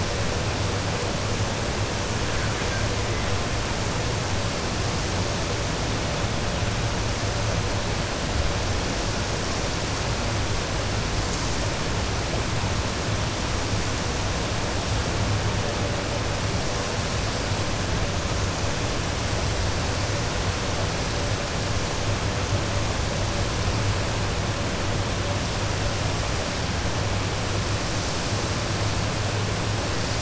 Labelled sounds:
2.3	2.8	killer whale, 1.1 to 2.5 kHz

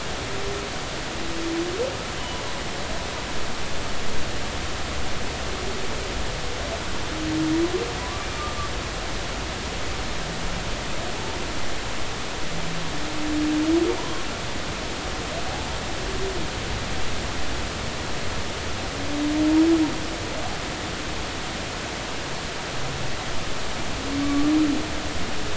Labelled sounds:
2.2	2.4	humpback whale, 2.9 to 3.2 kHz
8.0	8.3	humpback whale, 0.96 to 1.2 kHz
11.1	11.4	humpback whale, 0.83 to 0.96 kHz
14.0	14.2	humpback whale, 0.93 to 1.1 kHz
24.2	24.5	humpback whale, 1.1 to 1.2 kHz

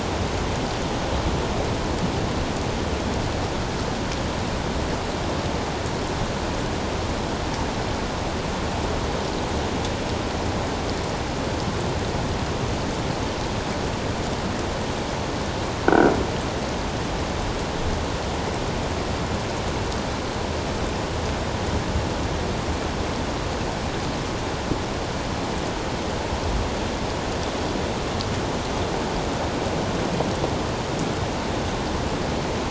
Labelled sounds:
15.9	16.1	croaking sound likely from a nearby submerged object, 1.3 to 1.6 kHz

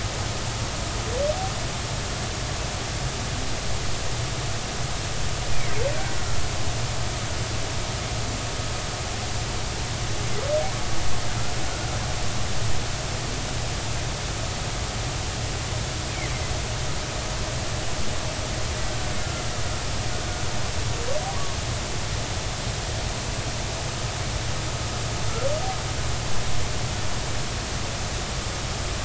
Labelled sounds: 21.3	21.6	humpback whale, 0.93 to 1.2 kHz

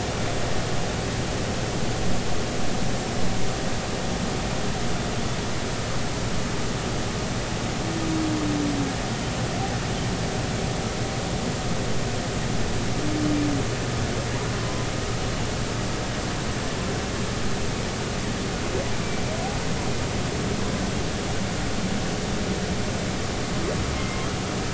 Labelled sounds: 14.6	14.9	humpback whale, 0.96 to 1.1 kHz

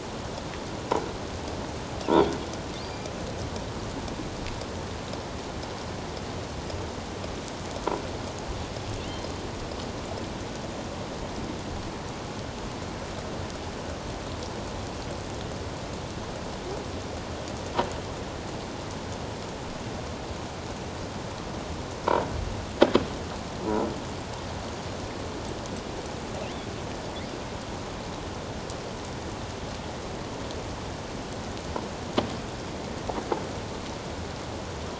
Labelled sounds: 2.8	3.1	killer whale, offshore, 4.7 to 4.8 kHz
9.0	9.3	killer whale, offshore, 2.7 to 4.2 kHz

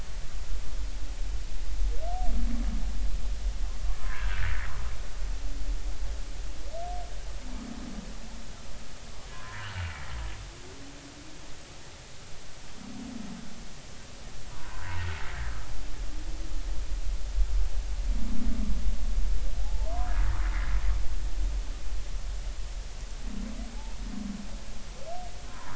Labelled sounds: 4.0	4.5	humpback whale, 0.96 to 1.8 kHz
9.3	9.9	humpback whale, 0.93 to 2.0 kHz
14.5	14.9	humpback whale, 0.90 to 1.3 kHz
19.6	19.9	humpback whale, 0.80 to 0.93 kHz
25.5	25.7	humpback whale, 0.86 to 1.3 kHz

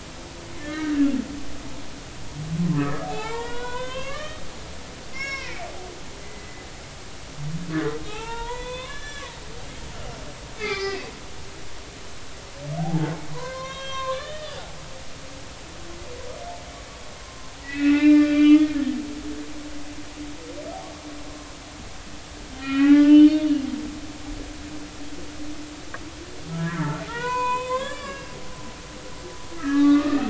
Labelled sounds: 0.6	1.0	humpback whale, 1.2 to 2.0 kHz
2.7	4.4	humpback whale, 0.80 to 5.2 kHz
5.1	5.7	humpback whale, 1.0 to 7.2 kHz
6.2	6.6	humpback whale, 1.95 to 2.05 kHz
8.1	9.3	humpback whale, 0.80 to 5.3 kHz
10.6	11.1	humpback whale, 1.1 to 6.0 kHz
12.8	14.6	humpback whale, 0.80 to 6.0 kHz
17.6	18.7	humpback whale, 1.1 to 4.8 kHz
22.6	23.5	humpback whale, 0.80 to 3.7 kHz
26.5	28.3	humpback whale, 0.90 to 6.6 kHz
29.6	30.2	humpback whale, 1.1 to 2.1 kHz

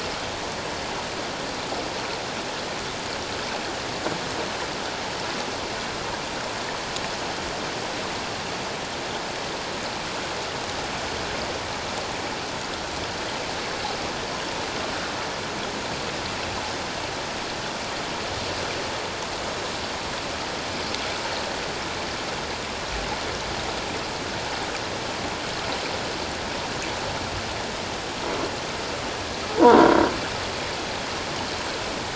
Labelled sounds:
29.6	29.9	croaking sound likely from a nearby submerged object, 0.84 to 1.1 kHz

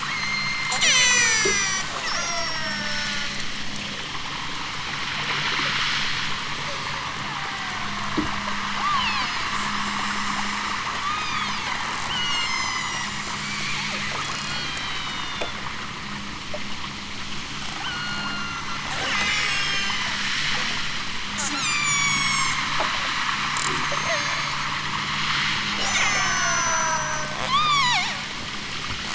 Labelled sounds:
0.0	3.2	killer whale, southern Alaska resident, 0.32 to 8.0 kHz
6.6	8.0	killer whale, southern Alaska resident, 0.50 to 5.7 kHz
8.7	10.7	killer whale, southern Alaska resident, 0.60 to 8.0 kHz
11.1	11.8	killer whale, southern Alaska resident, 1.0 to 8.0 kHz
12.1	13.2	killer whale, southern Alaska resident, 2.2 to 8.0 kHz
14.2	15.6	killer whale, southern Alaska resident, 1.9 to 8.0 kHz
17.7	20.2	killer whale, southern Alaska resident, 0.87 to 8.0 kHz
21.3	22.6	killer whale, southern Alaska resident, 1.9 to 8.0 kHz
23.5	24.7	killer whale, southern Alaska resident, 1.7 to 8.0 kHz
25.9	28.2	killer whale, southern Alaska resident, 0.55 to 8.0 kHz

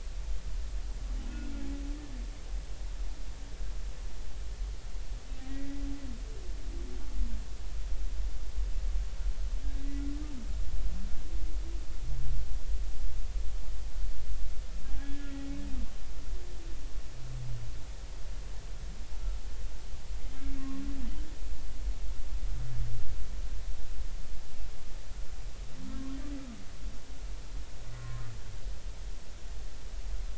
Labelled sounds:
1.3	1.5	humpback whale, 1.4 to 1.5 kHz
5.4	5.8	humpback whale, 1.8 to 2.0 kHz
14.9	15.3	humpback whale, 1.6 to 1.8 kHz
20.6	20.8	humpback whale, 1.0 to 1.2 kHz
25.9	26.2	humpback whale, 1.0 to 1.1 kHz
28.0	28.2	humpback whale, 1.0 to 1.1 kHz

